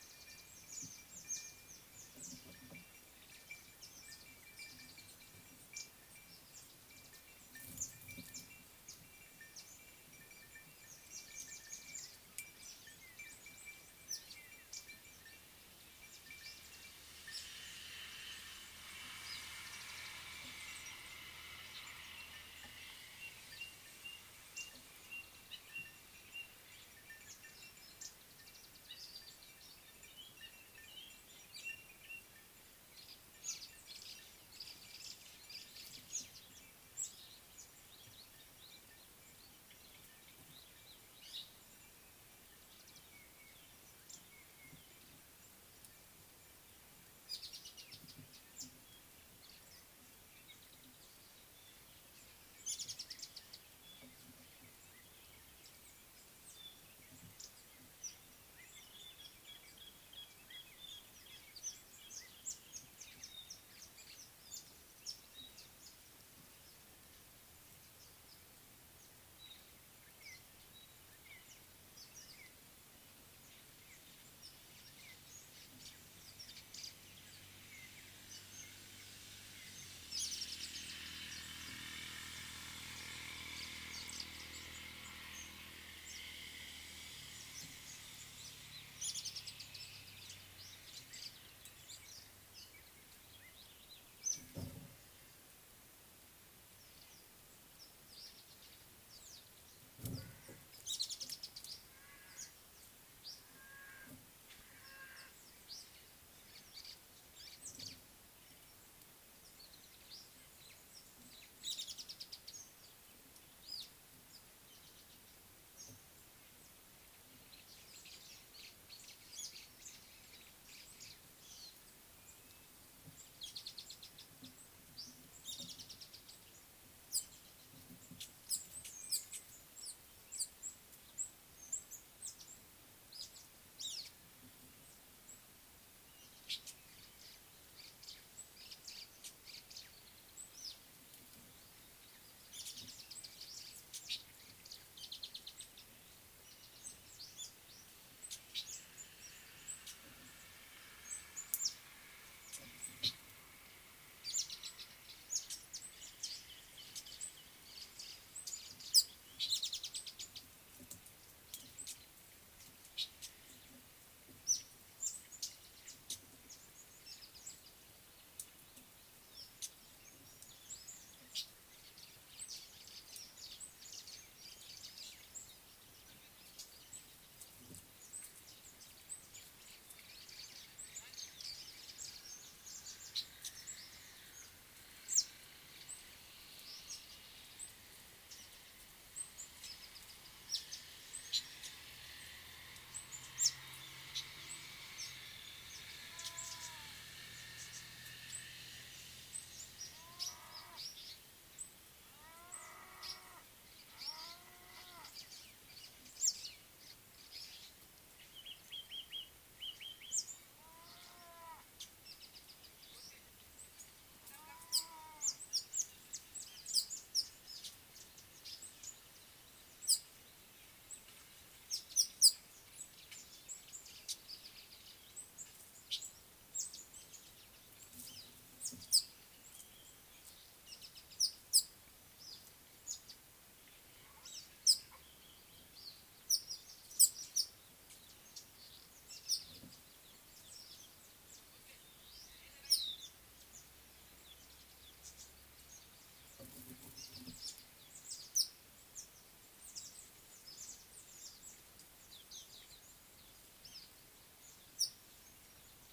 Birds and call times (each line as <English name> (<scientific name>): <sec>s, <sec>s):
Speckled Mousebird (Colius striatus): 1.4s, 14.1s, 37.1s, 47.6s, 53.1s, 63.0s, 80.5s, 89.2s, 94.3s, 101.1s, 112.0s, 123.8s, 133.9s, 143.2s, 151.6s, 159.8s, 165.1s
Red-faced Crombec (Sylvietta whytii): 5.8s, 44.1s
White-browed Robin-Chat (Cossypha heuglini): 24.1s
White-browed Sparrow-Weaver (Plocepasser mahali): 34.6s, 138.9s, 173.9s, 181.5s
Nubian Woodpecker (Campethera nubica): 60.6s
Thrush Nightingale (Luscinia luscinia): 65.4s
Baglafecht Weaver (Ploceus baglafecht): 125.0s
Red-headed Weaver (Anaplectes rubriceps): 127.2s, 129.9s, 136.5s, 159.0s, 215.3s, 225.9s, 229.0s, 239.3s, 248.4s, 254.8s
African Paradise-Flycatcher (Terpsiphone viridis): 200.8s, 209.1s
Pale White-eye (Zosterops flavilateralis): 242.8s, 252.4s